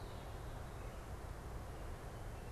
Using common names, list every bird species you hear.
American Robin, Red-winged Blackbird